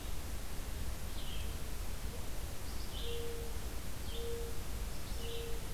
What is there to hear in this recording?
Red-eyed Vireo, Mourning Dove